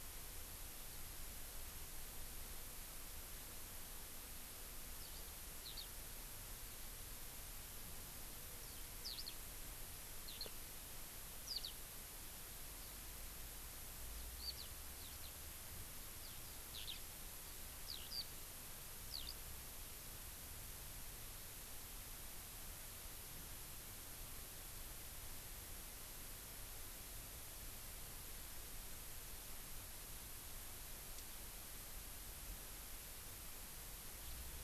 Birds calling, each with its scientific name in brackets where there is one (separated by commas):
Eurasian Skylark (Alauda arvensis)